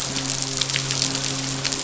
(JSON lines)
{"label": "biophony, midshipman", "recorder": "SoundTrap 500"}